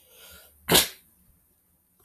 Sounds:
Sneeze